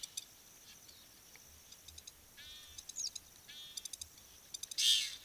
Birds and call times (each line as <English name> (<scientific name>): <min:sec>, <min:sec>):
Egyptian Goose (Alopochen aegyptiaca): 0:02.6
Long-toed Lapwing (Vanellus crassirostris): 0:03.9